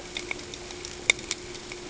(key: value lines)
label: ambient
recorder: HydroMoth